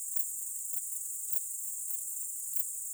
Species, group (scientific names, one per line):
Pholidoptera griseoaptera
Orthoptera